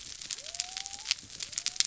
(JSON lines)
{"label": "biophony", "recorder": "SoundTrap 300"}